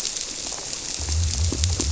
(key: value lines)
label: biophony
recorder: SoundTrap 300